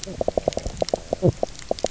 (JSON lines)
{"label": "biophony, knock croak", "recorder": "SoundTrap 300"}